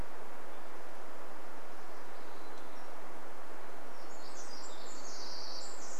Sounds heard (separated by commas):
Pacific Wren song, Hermit Thrush song